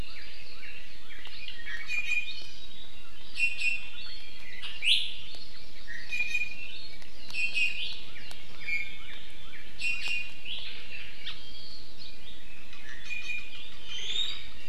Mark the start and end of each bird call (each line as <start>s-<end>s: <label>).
0.0s-1.3s: Northern Cardinal (Cardinalis cardinalis)
1.4s-2.6s: Iiwi (Drepanis coccinea)
3.3s-4.0s: Iiwi (Drepanis coccinea)
4.8s-5.0s: Iiwi (Drepanis coccinea)
5.1s-6.1s: Hawaii Amakihi (Chlorodrepanis virens)
5.8s-6.8s: Iiwi (Drepanis coccinea)
7.3s-8.1s: Iiwi (Drepanis coccinea)
8.0s-10.1s: Northern Cardinal (Cardinalis cardinalis)
8.5s-9.1s: Iiwi (Drepanis coccinea)
9.8s-10.7s: Iiwi (Drepanis coccinea)
10.7s-12.0s: Hawaii Amakihi (Chlorodrepanis virens)
11.9s-14.5s: Iiwi (Drepanis coccinea)